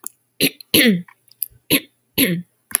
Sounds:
Throat clearing